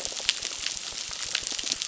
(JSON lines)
{"label": "biophony, crackle", "recorder": "SoundTrap 600"}